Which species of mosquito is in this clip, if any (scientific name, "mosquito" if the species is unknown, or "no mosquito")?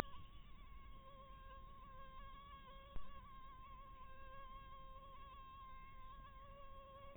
mosquito